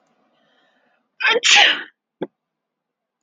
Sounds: Sneeze